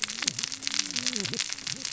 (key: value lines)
label: biophony, cascading saw
recorder: SoundTrap 600 or HydroMoth